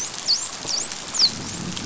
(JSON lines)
{"label": "biophony, dolphin", "recorder": "SoundTrap 500"}
{"label": "biophony, growl", "recorder": "SoundTrap 500"}